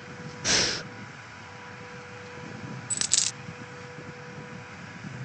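At the start, breathing can be heard. Then about 3 seconds in, a coin drops.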